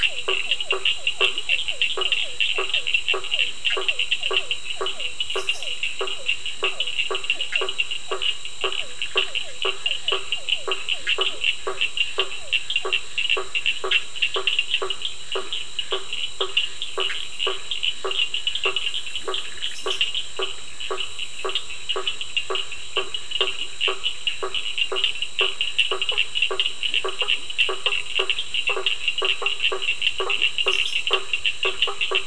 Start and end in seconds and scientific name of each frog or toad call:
0.0	12.7	Physalaemus cuvieri
0.0	32.2	Boana faber
0.0	32.2	Sphaenorhynchus surdus
19.2	19.8	Boana bischoffi